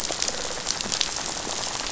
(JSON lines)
{"label": "biophony, rattle", "recorder": "SoundTrap 500"}